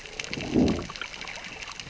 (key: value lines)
label: biophony, growl
recorder: SoundTrap 600 or HydroMoth